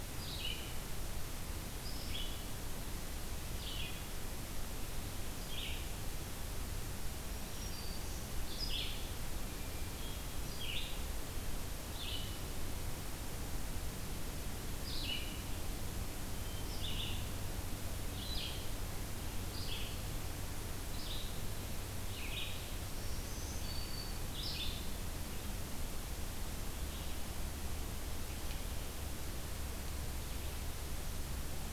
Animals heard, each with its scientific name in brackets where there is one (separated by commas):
Hermit Thrush (Catharus guttatus), Black-throated Green Warbler (Setophaga virens), Red-eyed Vireo (Vireo olivaceus)